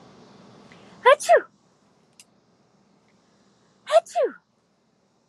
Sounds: Sneeze